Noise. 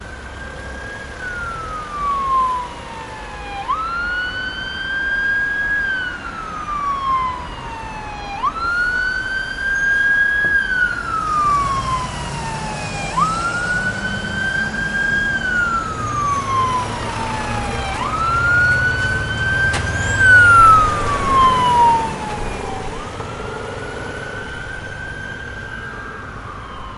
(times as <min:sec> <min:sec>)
0:19.6 0:20.0